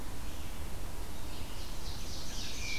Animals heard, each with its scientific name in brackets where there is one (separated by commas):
Scarlet Tanager (Piranga olivacea), Red-eyed Vireo (Vireo olivaceus), Ovenbird (Seiurus aurocapilla)